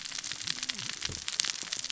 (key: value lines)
label: biophony, cascading saw
recorder: SoundTrap 600 or HydroMoth